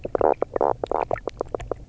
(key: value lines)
label: biophony, knock croak
recorder: SoundTrap 300